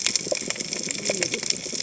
{"label": "biophony, cascading saw", "recorder": "HydroMoth"}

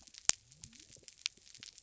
{"label": "biophony", "recorder": "SoundTrap 300"}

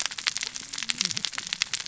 {"label": "biophony, cascading saw", "recorder": "SoundTrap 600 or HydroMoth"}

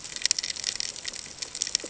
{"label": "ambient", "recorder": "HydroMoth"}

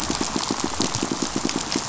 {"label": "biophony, pulse", "recorder": "SoundTrap 500"}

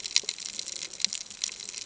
{"label": "ambient", "recorder": "HydroMoth"}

